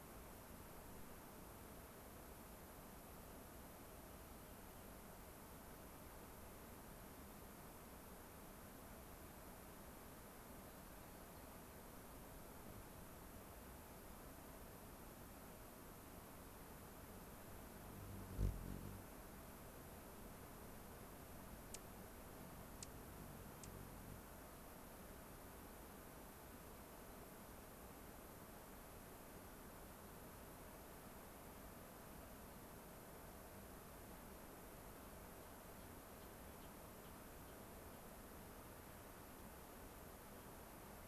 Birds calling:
Gray-crowned Rosy-Finch (Leucosticte tephrocotis), Rock Wren (Salpinctes obsoletus), Dark-eyed Junco (Junco hyemalis)

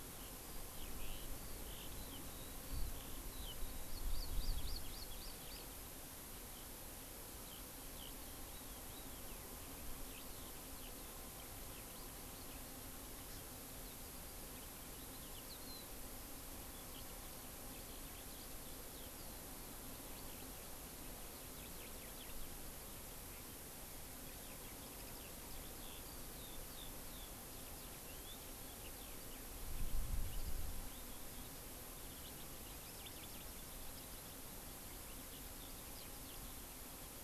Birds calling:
Hawaii Amakihi (Chlorodrepanis virens), Eurasian Skylark (Alauda arvensis)

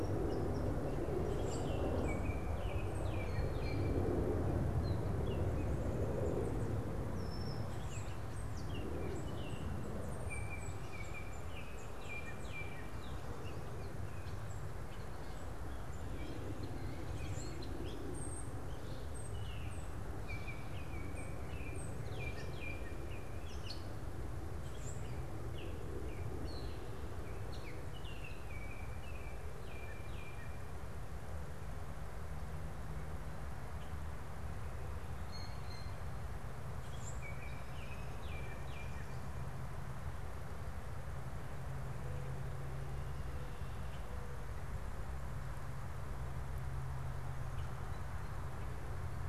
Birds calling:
Baltimore Oriole (Icterus galbula), unidentified bird, Common Grackle (Quiscalus quiscula), Blue Jay (Cyanocitta cristata)

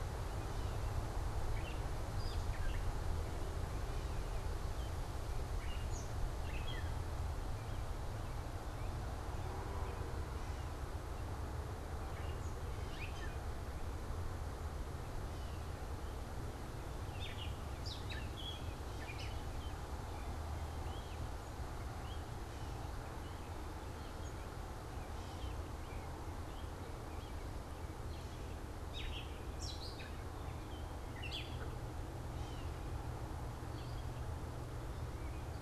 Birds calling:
American Robin (Turdus migratorius), Gray Catbird (Dumetella carolinensis)

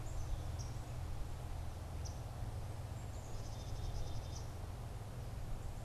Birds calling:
unidentified bird, Black-capped Chickadee (Poecile atricapillus)

